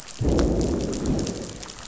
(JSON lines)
{"label": "biophony, growl", "recorder": "SoundTrap 500"}